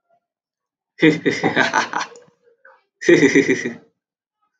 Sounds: Laughter